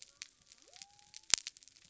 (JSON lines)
{"label": "biophony", "recorder": "SoundTrap 300"}